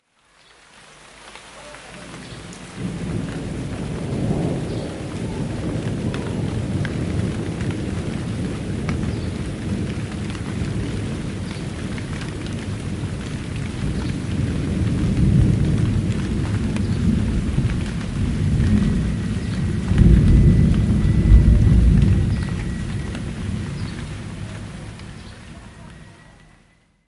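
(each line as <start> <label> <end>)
0.0 Constant rain outdoors. 27.1
2.7 Thunder gradually increases in intensity outdoors. 24.6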